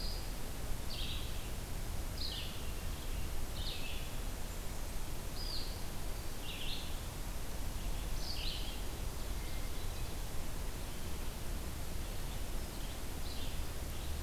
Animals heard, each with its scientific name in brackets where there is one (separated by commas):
Hermit Thrush (Catharus guttatus), Red-eyed Vireo (Vireo olivaceus)